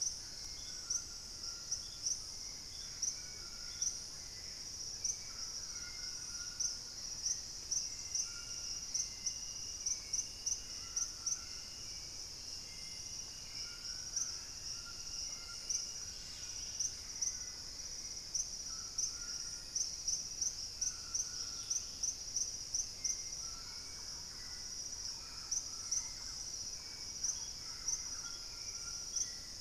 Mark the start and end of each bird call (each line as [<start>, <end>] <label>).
[0.00, 8.86] Purple-throated Fruitcrow (Querula purpurata)
[0.00, 29.60] Hauxwell's Thrush (Turdus hauxwelli)
[0.00, 29.60] White-throated Toucan (Ramphastos tucanus)
[2.25, 5.66] Gray Antbird (Cercomacra cinerascens)
[5.36, 7.75] Black-capped Becard (Pachyramphus marginatus)
[15.26, 17.95] Purple-throated Fruitcrow (Querula purpurata)
[15.86, 22.16] Dusky-capped Greenlet (Pachysylvia hypoxantha)
[23.25, 28.45] Thrush-like Wren (Campylorhynchus turdinus)